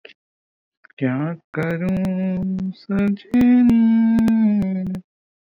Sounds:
Sigh